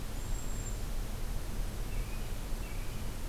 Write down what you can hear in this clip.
Cedar Waxwing, American Robin